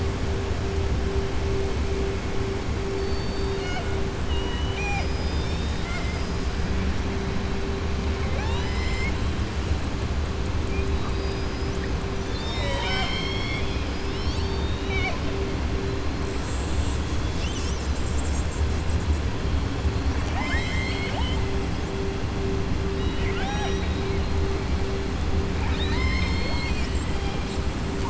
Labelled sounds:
2.9	3.9	killer whale, southern resident, 0.70 to 7.2 kHz
4.2	5.1	killer whale, southern resident, 0.62 to 3.9 kHz
8.1	9.2	killer whale, southern resident, 0.56 to 7.7 kHz
11.0	11.8	killer whale, southern resident, 3.8 to 7.3 kHz
20.2	21.4	killer whale, southern resident, 0.63 to 7.5 kHz
22.9	24.2	killer whale, southern resident, 0.73 to 6.6 kHz
25.5	27.3	killer whale, southern resident, 0.71 to 7.8 kHz

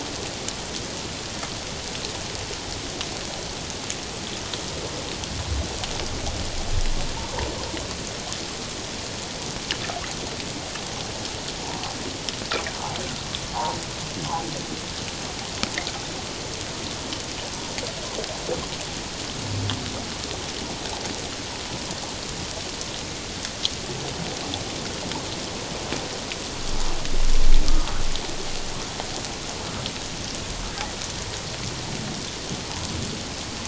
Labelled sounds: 13.5	13.8	humpback whale, 0.78 to 1.2 kHz
27.7	28.0	humpback whale, 1.1 to 1.3 kHz

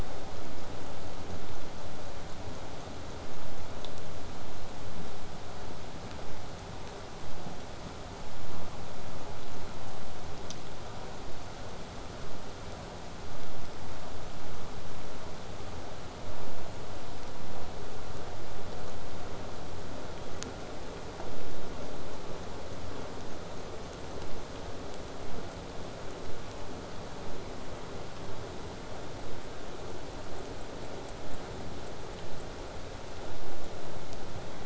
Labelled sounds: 30.3	32.7	killer whale, southern resident, 6.5 to 8.0 kHz

